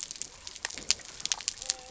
{"label": "biophony", "recorder": "SoundTrap 300"}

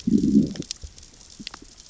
{"label": "biophony, growl", "recorder": "SoundTrap 600 or HydroMoth"}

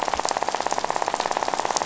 {"label": "biophony, rattle", "recorder": "SoundTrap 500"}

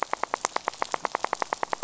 {"label": "biophony, rattle", "recorder": "SoundTrap 500"}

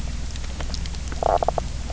{"label": "biophony, knock croak", "recorder": "SoundTrap 300"}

